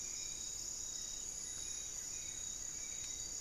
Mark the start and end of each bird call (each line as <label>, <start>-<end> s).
Hauxwell's Thrush (Turdus hauxwelli), 0.0-3.4 s
Goeldi's Antbird (Akletos goeldii), 0.8-3.4 s